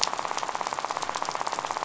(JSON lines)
{"label": "biophony, rattle", "recorder": "SoundTrap 500"}